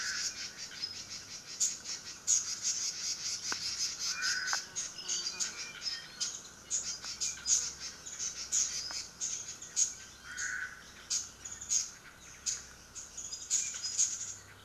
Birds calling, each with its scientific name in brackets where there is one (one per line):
Red-billed Leiothrix (Leiothrix lutea)
Warbling White-eye (Zosterops japonicus)
Omao (Myadestes obscurus)